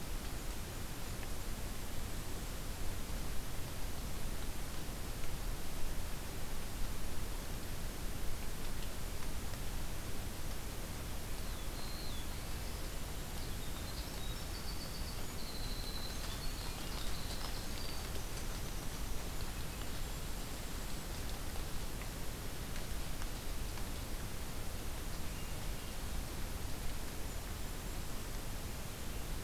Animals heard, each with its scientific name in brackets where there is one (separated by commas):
Black-throated Blue Warbler (Setophaga caerulescens), Golden-crowned Kinglet (Regulus satrapa), Winter Wren (Troglodytes hiemalis)